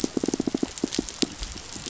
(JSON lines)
{"label": "biophony, pulse", "recorder": "SoundTrap 500"}